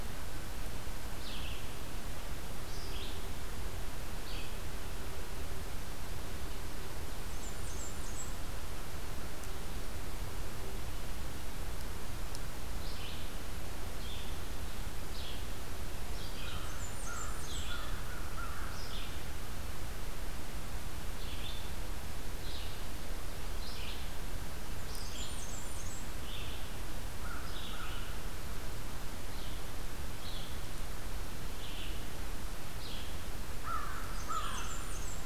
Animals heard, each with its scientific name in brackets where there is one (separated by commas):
Red-eyed Vireo (Vireo olivaceus), Blackburnian Warbler (Setophaga fusca), American Crow (Corvus brachyrhynchos)